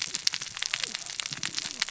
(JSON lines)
{"label": "biophony, cascading saw", "recorder": "SoundTrap 600 or HydroMoth"}